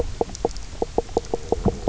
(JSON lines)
{"label": "biophony, knock croak", "recorder": "SoundTrap 300"}